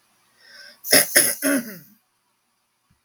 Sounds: Throat clearing